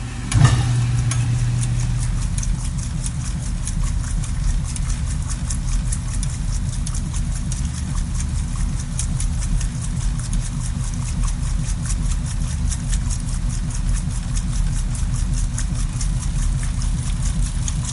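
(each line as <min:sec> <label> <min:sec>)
0:01.7 A washing machine is operating. 0:12.5
0:01.7 Continuous water sloshing and churning during a wash cycle. 0:12.5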